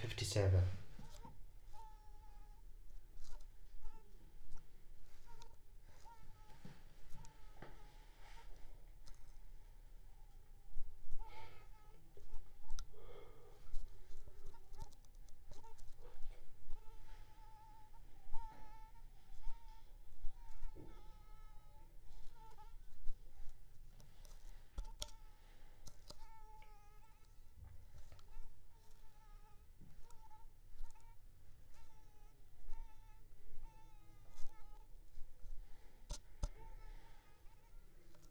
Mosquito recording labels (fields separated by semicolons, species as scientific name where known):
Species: Anopheles arabiensis; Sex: female; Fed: unfed; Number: one; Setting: cup